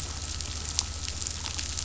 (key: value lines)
label: anthrophony, boat engine
recorder: SoundTrap 500